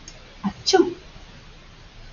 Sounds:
Sneeze